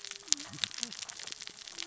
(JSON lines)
{"label": "biophony, cascading saw", "recorder": "SoundTrap 600 or HydroMoth"}